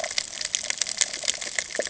{"label": "ambient", "recorder": "HydroMoth"}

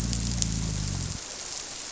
{"label": "biophony", "recorder": "SoundTrap 300"}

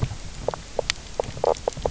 {"label": "biophony, knock croak", "recorder": "SoundTrap 300"}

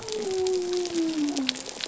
{"label": "biophony", "recorder": "SoundTrap 300"}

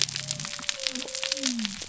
{"label": "biophony", "recorder": "SoundTrap 300"}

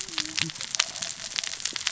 {"label": "biophony, cascading saw", "recorder": "SoundTrap 600 or HydroMoth"}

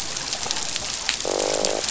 {"label": "biophony, croak", "recorder": "SoundTrap 500"}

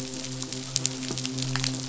{"label": "biophony", "recorder": "SoundTrap 500"}
{"label": "biophony, midshipman", "recorder": "SoundTrap 500"}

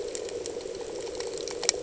{"label": "anthrophony, boat engine", "recorder": "HydroMoth"}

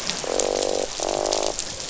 {"label": "biophony, croak", "recorder": "SoundTrap 500"}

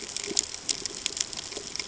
{"label": "ambient", "recorder": "HydroMoth"}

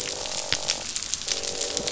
{"label": "biophony, croak", "recorder": "SoundTrap 500"}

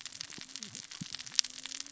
{"label": "biophony, cascading saw", "recorder": "SoundTrap 600 or HydroMoth"}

